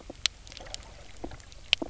{"label": "biophony, knock croak", "recorder": "SoundTrap 300"}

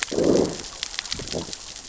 {"label": "biophony, growl", "recorder": "SoundTrap 600 or HydroMoth"}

